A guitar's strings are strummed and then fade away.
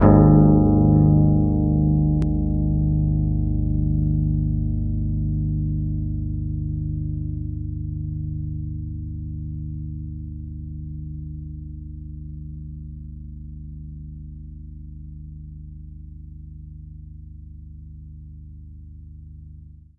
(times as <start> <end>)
0.0 12.3